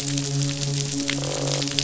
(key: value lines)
label: biophony, midshipman
recorder: SoundTrap 500

label: biophony, croak
recorder: SoundTrap 500